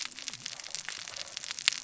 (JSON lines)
{"label": "biophony, cascading saw", "recorder": "SoundTrap 600 or HydroMoth"}